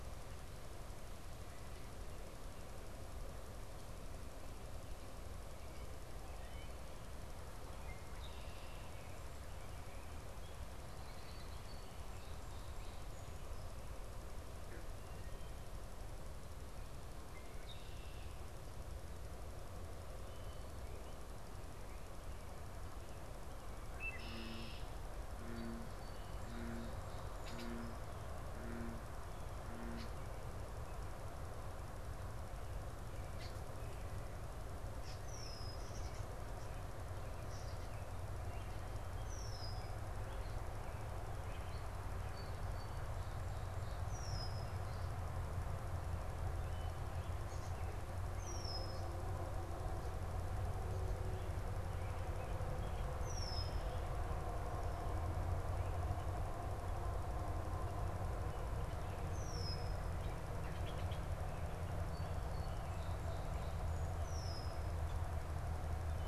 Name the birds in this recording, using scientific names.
Agelaius phoeniceus, Melospiza melodia